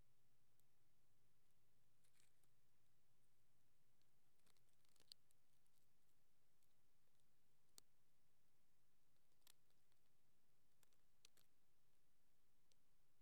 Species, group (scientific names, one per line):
Eupholidoptera latens
Orthoptera